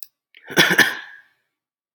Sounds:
Cough